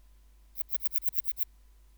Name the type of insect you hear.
orthopteran